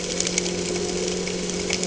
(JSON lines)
{"label": "anthrophony, boat engine", "recorder": "HydroMoth"}